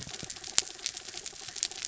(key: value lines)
label: anthrophony, mechanical
recorder: SoundTrap 300